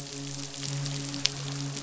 {"label": "biophony, midshipman", "recorder": "SoundTrap 500"}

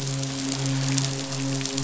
{"label": "biophony, midshipman", "recorder": "SoundTrap 500"}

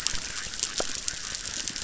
{"label": "biophony, chorus", "recorder": "SoundTrap 600"}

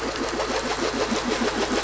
{"label": "anthrophony, boat engine", "recorder": "SoundTrap 500"}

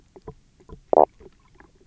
{"label": "biophony, knock croak", "recorder": "SoundTrap 300"}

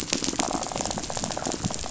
{"label": "biophony, rattle", "recorder": "SoundTrap 500"}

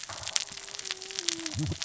{"label": "biophony, cascading saw", "recorder": "SoundTrap 600 or HydroMoth"}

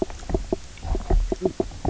{"label": "biophony, knock croak", "recorder": "SoundTrap 300"}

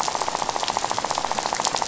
{"label": "biophony, rattle", "recorder": "SoundTrap 500"}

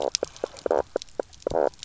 {"label": "biophony, knock croak", "recorder": "SoundTrap 300"}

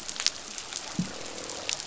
{"label": "biophony, croak", "recorder": "SoundTrap 500"}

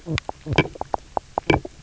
{"label": "biophony, knock croak", "recorder": "SoundTrap 300"}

